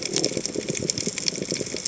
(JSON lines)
{"label": "biophony", "recorder": "HydroMoth"}
{"label": "biophony, chatter", "recorder": "HydroMoth"}